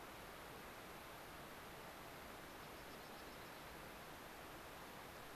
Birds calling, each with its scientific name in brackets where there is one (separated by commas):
Dark-eyed Junco (Junco hyemalis)